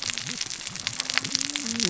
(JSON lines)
{"label": "biophony, cascading saw", "recorder": "SoundTrap 600 or HydroMoth"}